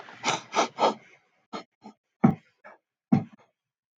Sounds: Sniff